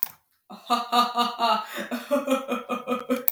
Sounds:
Laughter